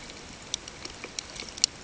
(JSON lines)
{"label": "ambient", "recorder": "HydroMoth"}